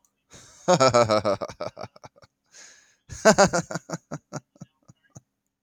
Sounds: Laughter